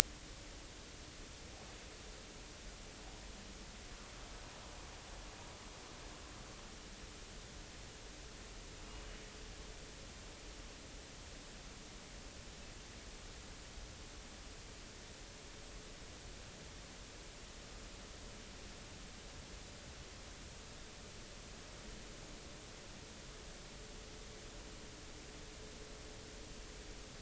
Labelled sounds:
8.9	9.2	killer whale, 2.8 to 2.9 kHz

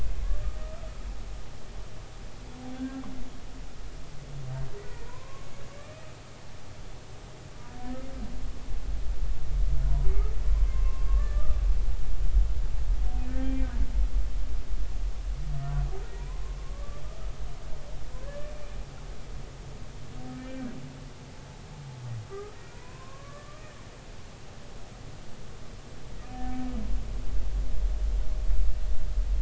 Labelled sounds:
0.6	0.9	humpback whale, 1.2 to 1.4 kHz
2.7	3.0	humpback whale, 1.5 to 1.7 kHz
4.8	5.5	humpback whale, 0.90 to 2.0 kHz
10.5	11.6	humpback whale, 0.99 to 1.8 kHz
13.3	13.7	humpback whale, 1.5 to 2.4 kHz
16.2	17.0	humpback whale, 0.90 to 1.2 kHz
18.2	18.5	humpback whale, 1.5 to 1.8 kHz
20.4	20.6	humpback whale, 1.7 to 1.9 kHz
22.3	23.6	humpback whale, 0.93 to 1.8 kHz

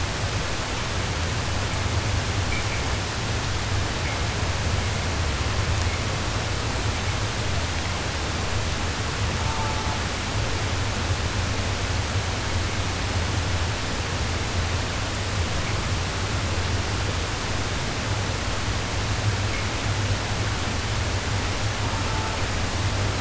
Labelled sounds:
9.2	10.0	killer whale, southern resident, 0.26 to 1.7 kHz
21.6	22.5	killer whale, southern resident, 0.56 to 1.6 kHz

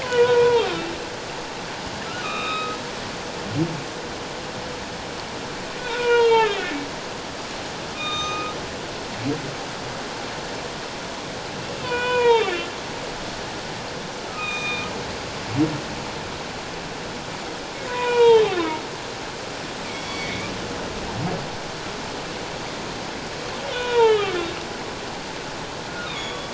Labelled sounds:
0.0	0.7	humpback whale, 0.78 to 3.5 kHz
2.2	2.8	humpback whale, 1.1 to 4.0 kHz
5.8	6.8	humpback whale, 0.81 to 4.3 kHz
7.9	8.5	humpback whale, 1.2 to 6.2 kHz
11.8	12.6	humpback whale, 0.84 to 3.9 kHz
14.3	14.9	humpback whale, 1.2 to 3.8 kHz
17.9	18.8	humpback whale, 0.84 to 3.8 kHz
19.9	20.5	humpback whale, 1.9 to 4.6 kHz
23.7	24.4	humpback whale, 0.81 to 3.8 kHz
26.0	26.5	humpback whale, 1.1 to 3.8 kHz

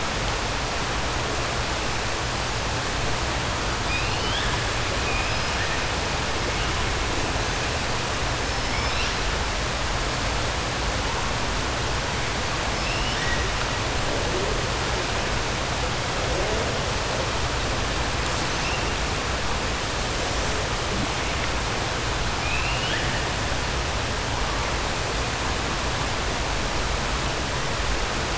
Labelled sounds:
3.8	4.5	killer whale, 1.6 to 5.2 kHz
12.8	13.4	killer whale, 1.8 to 3.7 kHz
22.4	23.2	killer whale, 1.5 to 3.3 kHz

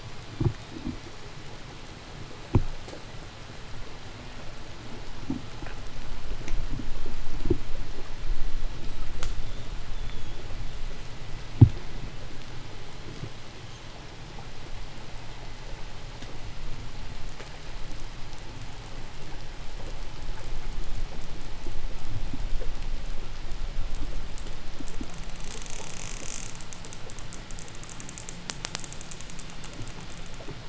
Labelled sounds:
8.6	10.6	killer whale, 3.1 to 4.0 kHz
23.7	26.7	killer whale, 1.7 to 8.0 kHz

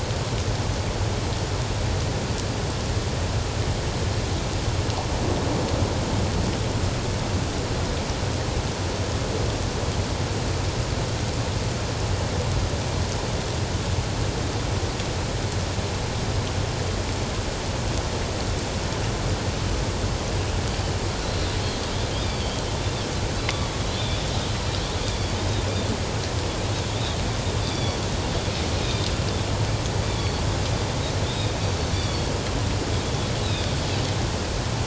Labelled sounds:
22.2	22.5	Pacific white-sided dolphin, 3.3 to 3.7 kHz
23.9	24.2	Pacific white-sided dolphin, 3.3 to 3.7 kHz
27.6	28.1	Pacific white-sided dolphin, 3.3 to 4.8 kHz
28.8	29.0	Pacific white-sided dolphin, 2.3 to 2.6 kHz
31.3	31.5	Pacific white-sided dolphin, 3.6 to 3.8 kHz
31.9	32.3	Pacific white-sided dolphin, 3.2 to 4.8 kHz
33.4	33.7	Pacific white-sided dolphin, 3.3 to 4.1 kHz

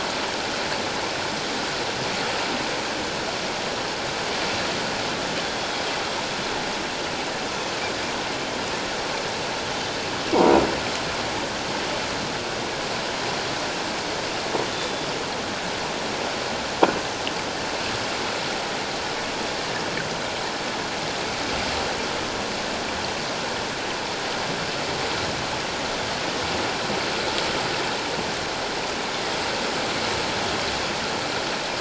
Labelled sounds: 5.4	5.7	killer whale, northern resident, G clan, 3.3 to 3.5 kHz
10.3	10.6	croaking sound likely from a nearby submerged object, 0.88 to 1.1 kHz

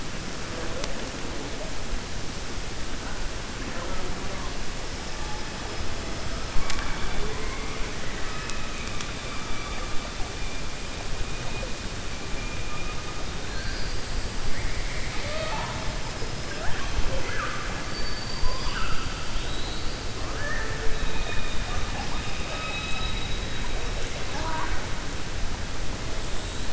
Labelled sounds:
17.8	19.1	killer whale, 0.49 to 5.0 kHz

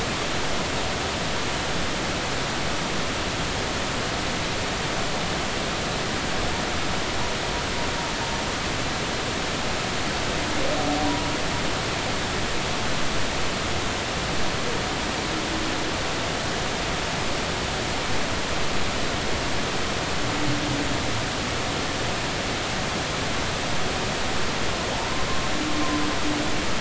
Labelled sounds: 11.0	11.3	humpback whale, 0.93 to 1.0 kHz

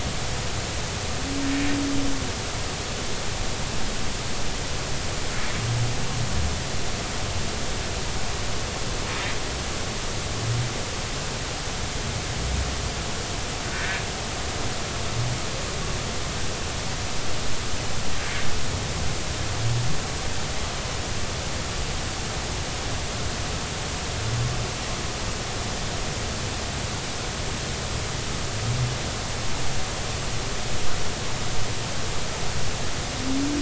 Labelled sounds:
13.7	14.0	humpback whale, 1.5 to 2.0 kHz

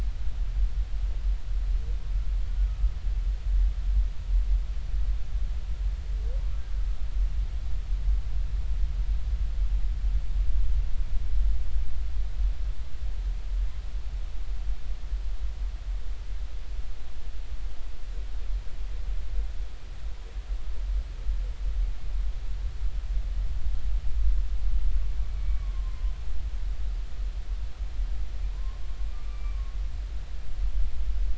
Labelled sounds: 25.3	26.1	humpback whale, 0.96 to 2.3 kHz
28.5	28.8	humpback whale, 0.96 to 1.1 kHz
29.1	29.8	humpback whale, 1.1 to 2.4 kHz

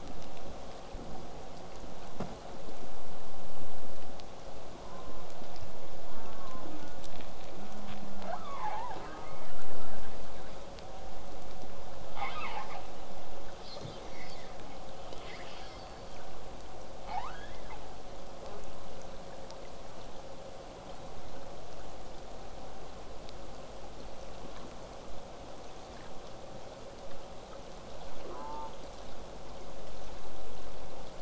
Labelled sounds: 4.7	5.3	killer whale, southern resident, J pod, call S04, 0.19 to 1.2 kHz
6.1	7.2	killer whale, southern resident, J pod, call S04, 0.15 to 1.7 kHz
7.5	8.3	killer whale, southern resident, J pod, call S04, 0.08 to 1.5 kHz
8.2	10.7	killer whale, southern resident, J pod, 0.15 to 3.8 kHz
9.0	9.5	killer whale, southern resident, J pod, call S04, 0.19 to 1.3 kHz
13.6	16.4	killer whale, southern resident, J pod, 0.31 to 6.6 kHz
17.0	17.9	killer whale, southern resident, J pod, 0.43 to 8.0 kHz
18.3	18.9	killer whale, southern resident, J pod, call S04, 0.31 to 1.6 kHz
28.2	28.8	killer whale, southern resident, J pod, call S04, 0.15 to 1.7 kHz

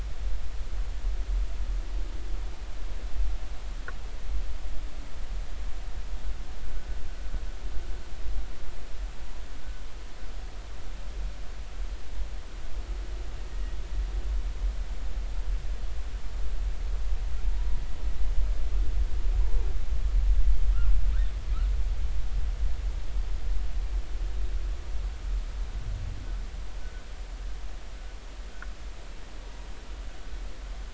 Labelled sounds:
13.5	13.8	humpback whale, 1.8 to 2.0 kHz
17.5	17.8	humpback whale, 0.90 to 1.0 kHz

